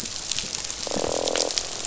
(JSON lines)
{"label": "biophony, croak", "recorder": "SoundTrap 500"}